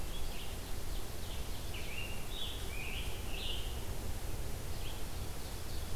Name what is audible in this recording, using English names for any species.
Red-eyed Vireo, Ovenbird, Scarlet Tanager